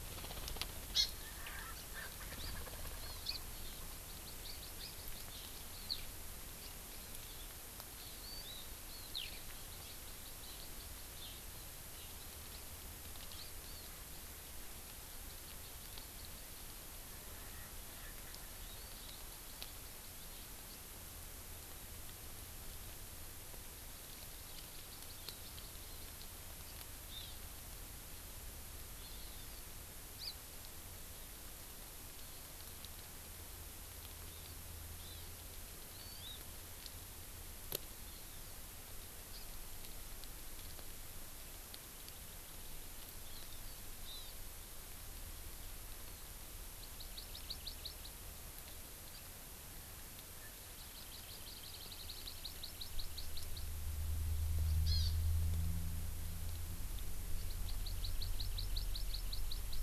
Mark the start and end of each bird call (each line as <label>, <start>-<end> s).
Hawaii Amakihi (Chlorodrepanis virens), 0.9-1.1 s
Erckel's Francolin (Pternistis erckelii), 1.2-3.2 s
Hawaii Amakihi (Chlorodrepanis virens), 3.0-3.2 s
Eurasian Skylark (Alauda arvensis), 3.2-13.5 s
Hawaii Amakihi (Chlorodrepanis virens), 8.2-8.6 s
Hawaii Amakihi (Chlorodrepanis virens), 13.6-13.9 s
Erckel's Francolin (Pternistis erckelii), 17.1-19.0 s
Hawaii Amakihi (Chlorodrepanis virens), 23.9-25.8 s
Hawaii Amakihi (Chlorodrepanis virens), 27.1-27.4 s
Hawaii Amakihi (Chlorodrepanis virens), 29.0-29.2 s
Hawaii Amakihi (Chlorodrepanis virens), 30.2-30.3 s
Hawaii Amakihi (Chlorodrepanis virens), 34.3-34.6 s
Hawaii Amakihi (Chlorodrepanis virens), 35.0-35.3 s
Hawaii Amakihi (Chlorodrepanis virens), 35.9-36.4 s
Hawaii Amakihi (Chlorodrepanis virens), 38.0-38.6 s
House Finch (Haemorhous mexicanus), 39.3-39.5 s
Hawaii Amakihi (Chlorodrepanis virens), 43.2-44.3 s
Hawaii Amakihi (Chlorodrepanis virens), 46.8-48.1 s
Hawaii Amakihi (Chlorodrepanis virens), 50.7-53.7 s
Hawaii Amakihi (Chlorodrepanis virens), 54.8-55.1 s
Hawaii Amakihi (Chlorodrepanis virens), 57.3-59.8 s